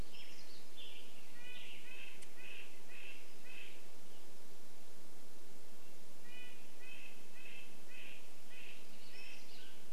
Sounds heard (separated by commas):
Western Tanager song, unidentified sound, Red-breasted Nuthatch song, Mountain Quail call